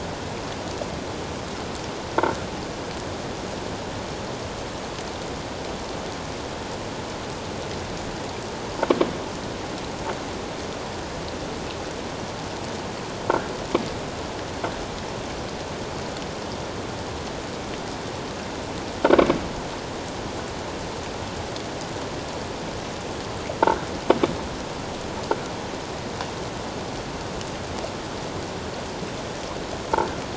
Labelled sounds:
19.1	19.4	croaking sound likely from a nearby submerged object, 2.1 to 2.4 kHz
23.6	23.9	croaking sound likely from a nearby submerged object, 1.3 to 1.7 kHz

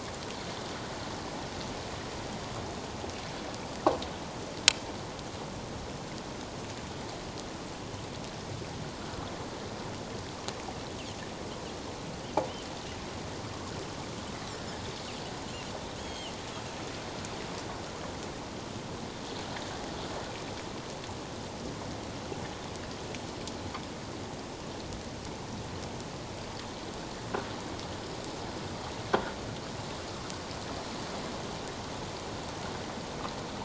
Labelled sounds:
16.0	16.3	Pacific white-sided dolphin, 2.1 to 6.7 kHz

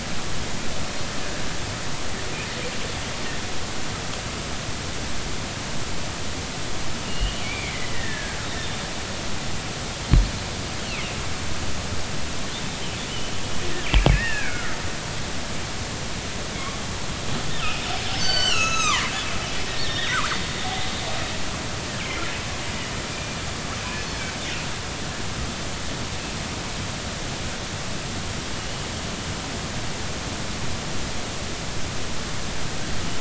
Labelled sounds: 7.0	8.9	killer whale, northern resident, G clan, GG subclan, 1.5 to 3.6 kHz
10.9	11.2	killer whale, northern resident, G clan, GG subclan, 2.0 to 3.0 kHz
14.1	14.7	killer whale, northern resident, G clan, GG subclan, 1.2 to 2.8 kHz
17.6	19.1	killer whale, northern resident, G clan, GG subclan, 0.90 to 8.0 kHz
19.7	20.9	killer whale, northern resident, G clan, GG subclan, 0.80 to 4.0 kHz
23.1	23.4	killer whale, northern resident, G clan, GG subclan, 2.3 to 2.5 kHz

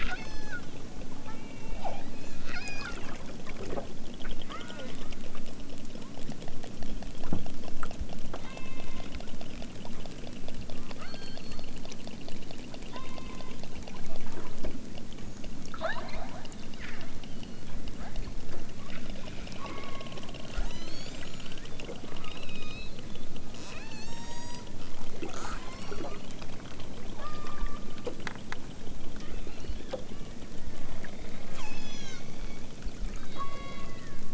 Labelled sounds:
0.0	0.6	killer whale, southern Alaska resident, 0.64 to 8.0 kHz
1.2	3.0	killer whale, southern Alaska resident, 0.51 to 6.4 kHz
4.4	5.1	killer whale, southern Alaska resident, 0.69 to 4.6 kHz
5.9	6.2	killer whale, southern Alaska resident, 0.64 to 2.4 kHz
8.3	9.1	killer whale, southern Alaska resident, 0.69 to 4.3 kHz
11.0	11.8	killer whale, southern Alaska resident, 0.60 to 4.7 kHz
12.8	13.7	killer whale, southern Alaska resident, 0.55 to 4.0 kHz
15.7	16.4	killer whale, southern Alaska resident, 0.41 to 4.8 kHz
17.2	17.8	killer whale, southern Alaska resident, 2.4 to 4.8 kHz
19.6	20.1	killer whale, southern Alaska resident, 0.69 to 3.5 kHz
20.5	21.6	killer whale, southern Alaska resident, 0.51 to 8.0 kHz
22.0	22.9	killer whale, southern Alaska resident, 0.78 to 6.7 kHz
23.6	24.7	killer whale, southern Alaska resident, 0.37 to 8.0 kHz
25.5	26.2	killer whale, southern Alaska resident, 0.64 to 8.0 kHz
27.1	28.0	killer whale, southern Alaska resident, 0.69 to 2.7 kHz
29.1	29.9	killer whale, southern Alaska resident, 0.74 to 5.0 kHz
31.5	32.6	killer whale, southern Alaska resident, 0.88 to 8.0 kHz
33.1	34.3	killer whale, southern Alaska resident, 0.60 to 4.7 kHz

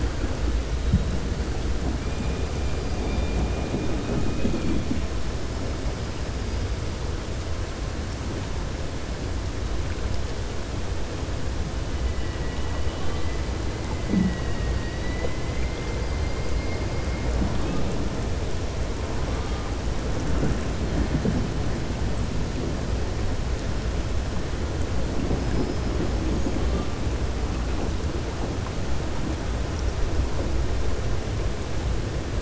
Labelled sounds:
14.6	15.9	killer whale, 1.8 to 4.7 kHz

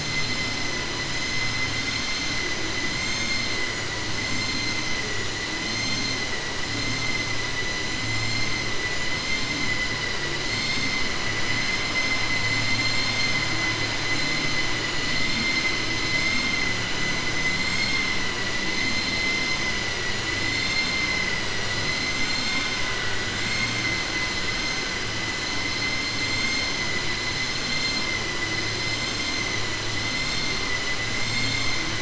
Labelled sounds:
2.9	3.5	vessel noise, 1.7 to 4.4 kHz
22.2	22.7	vessel noise, 1.3 to 5.2 kHz

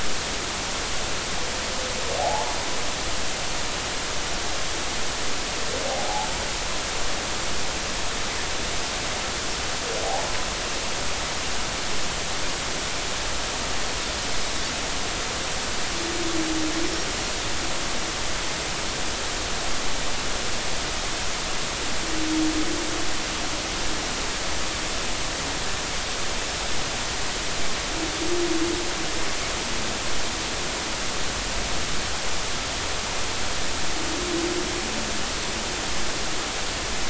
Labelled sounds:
2.2	2.6	humpback whale, 0.80 to 1.1 kHz
5.9	6.3	humpback whale, 0.80 to 0.96 kHz
10.0	10.3	humpback whale, 0.80 to 0.96 kHz

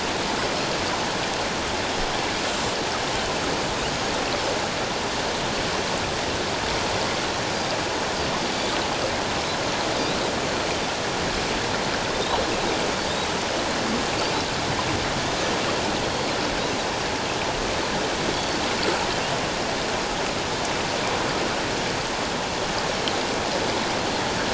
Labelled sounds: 12.1	12.4	Pacific white-sided dolphin, 3.5 to 4.1 kHz

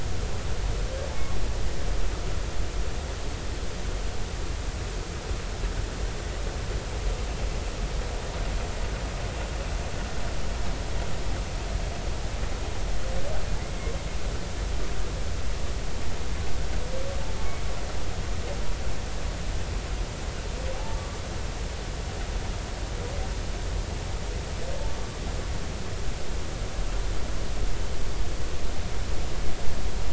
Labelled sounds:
20.7	21.2	humpback whale, 0.80 to 1.3 kHz

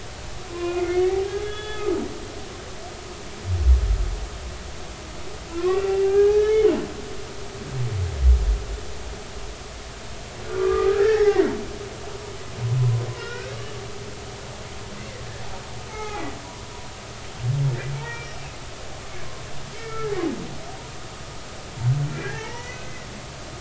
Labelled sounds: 0.5	1.9	humpback whale, 0.99 to 3.5 kHz
5.5	6.7	humpback whale, 0.80 to 3.1 kHz
10.5	11.5	humpback whale, 0.80 to 5.6 kHz
13.1	13.5	humpback whale, 1.3 to 5.6 kHz
15.0	16.3	humpback whale, 0.80 to 2.6 kHz
17.9	18.4	humpback whale, 0.86 to 5.2 kHz
19.7	20.1	humpback whale, 1.6 to 2.3 kHz
22.2	23.1	humpback whale, 0.80 to 6.1 kHz

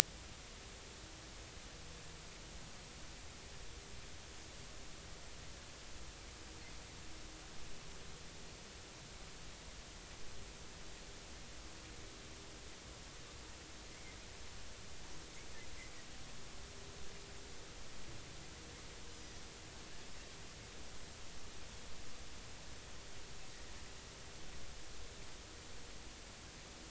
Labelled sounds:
13.9	14.2	Pacific white-sided dolphin, 2.0 to 2.3 kHz

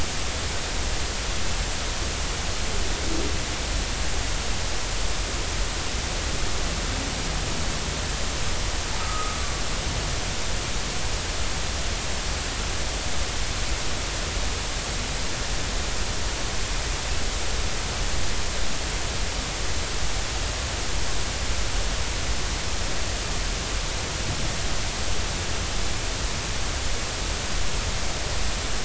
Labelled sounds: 9.0	9.4	humpback whale, 1.2 to 1.3 kHz

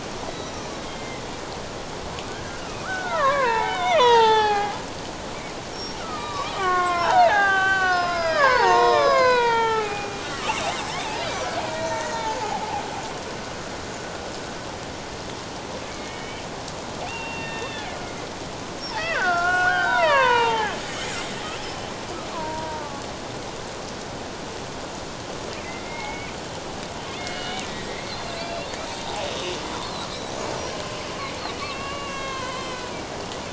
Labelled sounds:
0.3	1.2	killer whale, Bigg's (transient), 1.9 to 5.9 kHz
2.3	4.8	killer whale, Bigg's (transient), 0.78 to 6.2 kHz
5.7	10.2	killer whale, Bigg's (transient), 0.78 to 6.4 kHz
11.2	12.8	killer whale, Bigg's (transient), 0.78 to 2.4 kHz
15.9	16.5	killer whale, Bigg's (transient), 1.8 to 3.2 kHz
17.1	17.9	killer whale, Bigg's (transient), 1.8 to 3.7 kHz
18.9	20.8	killer whale, Bigg's (transient), 0.78 to 3.9 kHz
22.3	23.0	killer whale, Bigg's (transient), 0.81 to 1.2 kHz
25.6	29.2	killer whale, Bigg's (transient), 0.81 to 4.5 kHz
29.8	30.1	killer whale, Bigg's (transient), 3.8 to 4.4 kHz
30.6	33.0	killer whale, Bigg's (transient), 0.94 to 4.3 kHz

